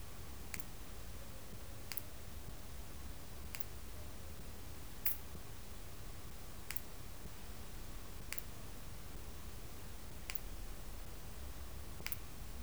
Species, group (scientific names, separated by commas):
Poecilimon ornatus, Orthoptera